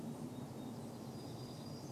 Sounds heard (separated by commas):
warbler song